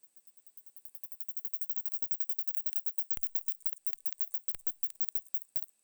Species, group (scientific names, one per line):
Isophya rectipennis
Orthoptera